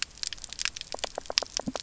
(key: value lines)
label: biophony, knock croak
recorder: SoundTrap 300